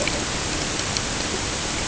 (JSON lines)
{"label": "ambient", "recorder": "HydroMoth"}